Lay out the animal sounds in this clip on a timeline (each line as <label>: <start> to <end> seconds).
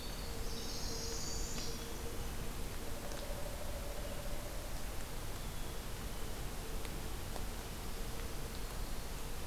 Winter Wren (Troglodytes hiemalis): 0.0 to 2.3 seconds
Northern Parula (Setophaga americana): 0.4 to 1.9 seconds
Pileated Woodpecker (Dryocopus pileatus): 3.0 to 4.9 seconds
Black-throated Green Warbler (Setophaga virens): 8.0 to 9.2 seconds